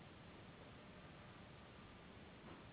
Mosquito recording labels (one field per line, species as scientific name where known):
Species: Anopheles gambiae s.s.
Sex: female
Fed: unfed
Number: one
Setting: insect culture